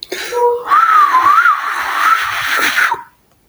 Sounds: Sigh